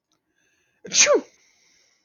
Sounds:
Sneeze